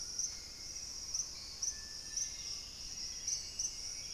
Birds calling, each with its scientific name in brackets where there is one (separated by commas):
White-throated Toucan (Ramphastos tucanus), Amazonian Pygmy-Owl (Glaucidium hardyi), Hauxwell's Thrush (Turdus hauxwelli), Screaming Piha (Lipaugus vociferans), Dusky-capped Greenlet (Pachysylvia hypoxantha)